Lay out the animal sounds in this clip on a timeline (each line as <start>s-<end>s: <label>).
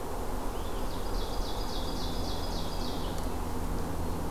0.0s-4.3s: Red-eyed Vireo (Vireo olivaceus)
0.3s-3.3s: Ovenbird (Seiurus aurocapilla)